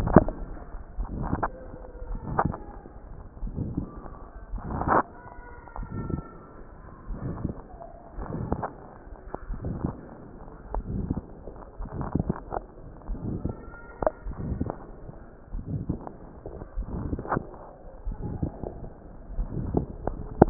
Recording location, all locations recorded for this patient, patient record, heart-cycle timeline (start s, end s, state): pulmonary valve (PV)
aortic valve (AV)+pulmonary valve (PV)+tricuspid valve (TV)+mitral valve (MV)
#Age: Adolescent
#Sex: Male
#Height: 148.0 cm
#Weight: 35.2 kg
#Pregnancy status: False
#Murmur: Present
#Murmur locations: aortic valve (AV)+mitral valve (MV)+pulmonary valve (PV)+tricuspid valve (TV)
#Most audible location: pulmonary valve (PV)
#Systolic murmur timing: Holosystolic
#Systolic murmur shape: Diamond
#Systolic murmur grading: III/VI or higher
#Systolic murmur pitch: Medium
#Systolic murmur quality: Harsh
#Diastolic murmur timing: Early-diastolic
#Diastolic murmur shape: Decrescendo
#Diastolic murmur grading: III/IV or IV/IV
#Diastolic murmur pitch: Medium
#Diastolic murmur quality: Blowing
#Outcome: Abnormal
#Campaign: 2014 screening campaign
0.00	0.75	unannotated
0.75	0.98	diastole
0.98	1.10	S1
1.10	1.34	systole
1.34	1.48	S2
1.48	2.10	diastole
2.10	2.20	S1
2.20	2.44	systole
2.44	2.54	S2
2.54	3.42	diastole
3.42	3.54	S1
3.54	3.76	systole
3.76	3.86	S2
3.86	4.52	diastole
4.52	4.62	S1
4.62	4.88	systole
4.88	5.02	S2
5.02	5.78	diastole
5.78	5.88	S1
5.88	6.10	systole
6.10	6.22	S2
6.22	7.10	diastole
7.10	7.20	S1
7.20	7.44	systole
7.44	7.54	S2
7.54	8.18	diastole
8.18	8.28	S1
8.28	8.50	systole
8.50	8.62	S2
8.62	9.50	diastole
9.50	9.60	S1
9.60	9.84	systole
9.84	9.94	S2
9.94	10.72	diastole
10.72	10.84	S1
10.84	11.10	systole
11.10	11.22	S2
11.22	11.96	diastole
11.96	12.08	S1
12.08	12.26	systole
12.26	12.34	S2
12.34	13.10	diastole
13.10	13.20	S1
13.20	13.44	systole
13.44	13.54	S2
13.54	14.26	diastole
14.26	14.36	S1
14.36	14.62	systole
14.62	14.72	S2
14.72	15.54	diastole
15.54	15.64	S1
15.64	15.88	systole
15.88	15.98	S2
15.98	16.78	diastole
16.78	16.88	S1
16.88	17.10	systole
17.10	17.20	S2
17.20	18.06	diastole
18.06	18.18	S1
18.18	18.40	systole
18.40	18.52	S2
18.52	19.36	diastole
19.36	19.50	S1
19.50	19.72	systole
19.72	19.86	S2
19.86	20.40	diastole
20.40	20.50	unannotated